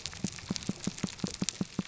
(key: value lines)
label: biophony, pulse
recorder: SoundTrap 300